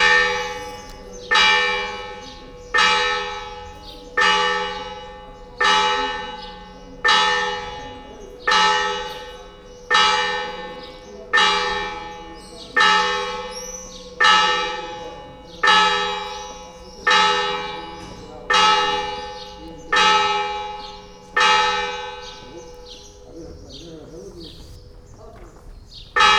Is a bell ringing?
yes